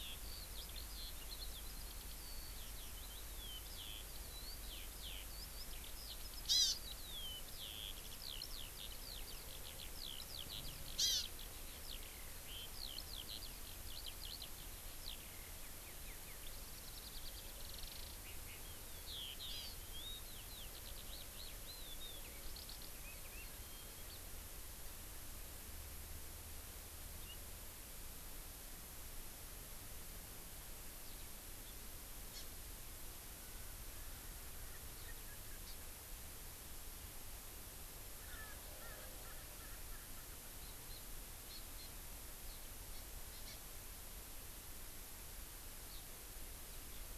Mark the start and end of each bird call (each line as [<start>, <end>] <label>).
[0.00, 24.08] Eurasian Skylark (Alauda arvensis)
[6.38, 6.88] Hawaii Amakihi (Chlorodrepanis virens)
[10.98, 11.28] Hawaii Amakihi (Chlorodrepanis virens)
[19.38, 19.88] Hawaii Amakihi (Chlorodrepanis virens)
[32.28, 32.48] Hawaii Amakihi (Chlorodrepanis virens)
[38.08, 40.38] Erckel's Francolin (Pternistis erckelii)